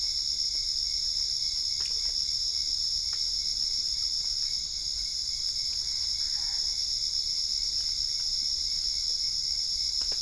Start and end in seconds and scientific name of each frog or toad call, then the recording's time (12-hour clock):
5.7	6.8	Boana albopunctata
9:15pm